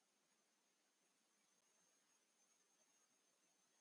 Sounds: Sneeze